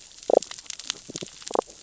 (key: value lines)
label: biophony, damselfish
recorder: SoundTrap 600 or HydroMoth